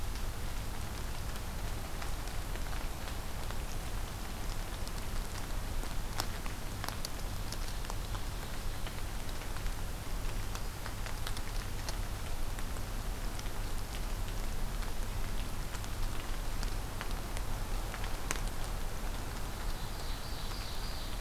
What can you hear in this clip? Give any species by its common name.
Ovenbird